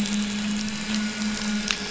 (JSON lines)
{"label": "anthrophony, boat engine", "recorder": "SoundTrap 500"}